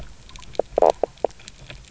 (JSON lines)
{"label": "biophony, knock croak", "recorder": "SoundTrap 300"}